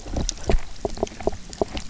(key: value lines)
label: biophony, knock
recorder: SoundTrap 300